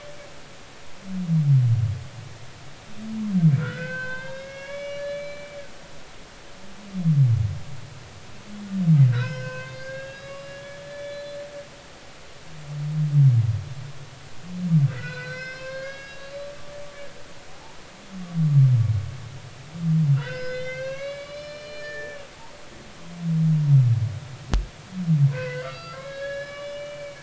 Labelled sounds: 3.6	5.9	humpback whale, 0.86 to 5.8 kHz
9.1	11.4	humpback whale, 0.96 to 5.2 kHz
14.9	16.5	humpback whale, 1.0 to 5.3 kHz
17.5	17.8	humpback whale, 0.80 to 0.99 kHz
20.1	22.2	humpback whale, 1.0 to 5.4 kHz
25.3	27.2	humpback whale, 0.96 to 5.2 kHz

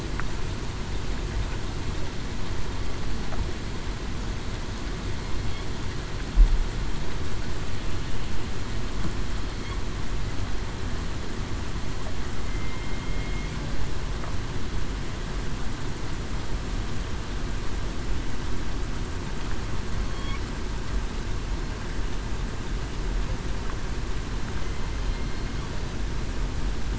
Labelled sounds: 12.5	13.5	killer whale, southern resident, 2.1 to 2.2 kHz

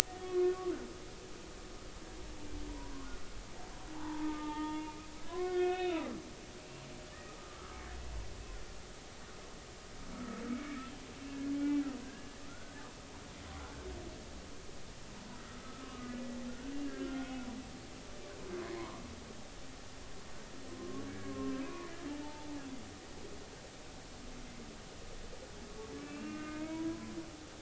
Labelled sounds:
0.2	0.7	humpback whale, 1.0 to 2.6 kHz
4.0	6.1	humpback whale, 0.80 to 4.1 kHz
7.1	7.6	humpback whale, 1.1 to 2.0 kHz
10.1	10.8	humpback whale, 1.2 to 2.3 kHz
11.5	11.8	humpback whale, 2.2 to 2.4 kHz
12.5	13.3	humpback whale, 1.3 to 1.7 kHz
15.5	16.1	humpback whale, 1.1 to 1.4 kHz
16.8	17.3	humpback whale, 1.3 to 1.7 kHz
18.7	19.0	humpback whale, 0.90 to 2.3 kHz
20.8	22.6	humpback whale, 0.80 to 2.6 kHz
26.0	27.1	humpback whale, 0.90 to 2.8 kHz

